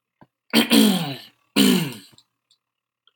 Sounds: Throat clearing